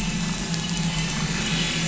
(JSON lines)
{"label": "anthrophony, boat engine", "recorder": "SoundTrap 500"}